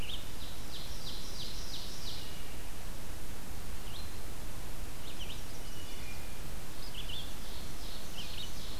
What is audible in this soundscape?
Red-eyed Vireo, Ovenbird, Wood Thrush, Chestnut-sided Warbler